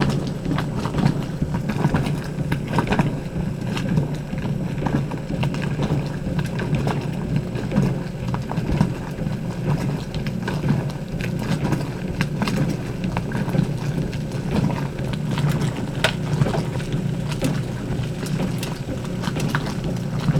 Is the sound coming from an animal?
yes